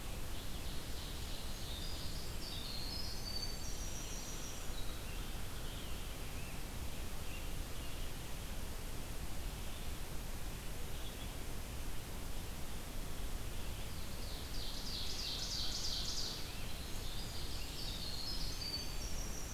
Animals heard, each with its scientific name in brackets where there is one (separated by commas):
Winter Wren (Troglodytes hiemalis), Ovenbird (Seiurus aurocapilla), Red-eyed Vireo (Vireo olivaceus)